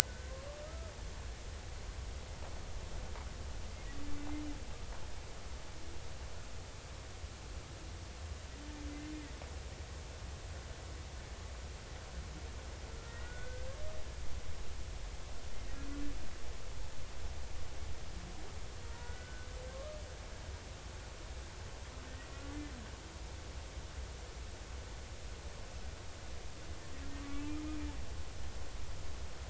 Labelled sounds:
0.6	1.4	humpback whale, 1.2 to 1.6 kHz
13.0	13.7	humpback whale, 1.3 to 2.0 kHz
18.8	19.5	humpback whale, 0.93 to 1.6 kHz
27.2	27.9	humpback whale, 1.1 to 2.5 kHz

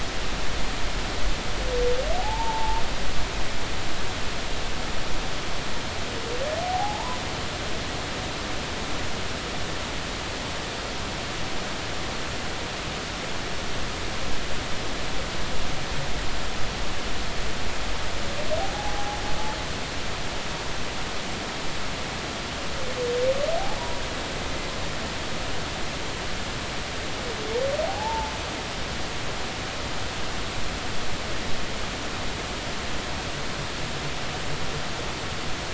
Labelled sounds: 2.2	2.8	humpback whale, 0.80 to 0.99 kHz
6.6	7.2	humpback whale, 0.80 to 1.1 kHz
18.7	19.2	humpback whale, 0.80 to 0.90 kHz
23.8	24.0	humpback whale, 0.90 to 1.0 kHz
27.8	28.3	humpback whale, 0.80 to 0.96 kHz

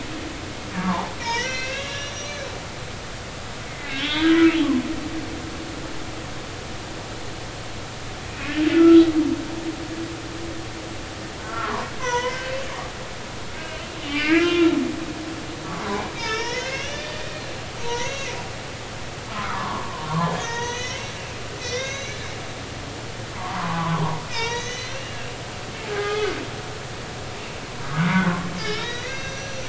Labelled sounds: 0.7	2.5	humpback whale, 0.80 to 6.5 kHz
3.7	4.6	humpback whale, 1.2 to 3.7 kHz
8.2	9.1	humpback whale, 1.3 to 2.8 kHz
11.4	12.5	humpback whale, 0.90 to 6.3 kHz
13.6	14.7	humpback whale, 1.1 to 3.0 kHz
16.2	18.4	humpback whale, 0.90 to 6.2 kHz
19.3	22.3	humpback whale, 0.86 to 6.7 kHz
23.4	25.2	humpback whale, 0.80 to 6.6 kHz
25.9	26.3	humpback whale, 0.80 to 2.2 kHz
28.0	29.6	humpback whale, 1.3 to 6.1 kHz

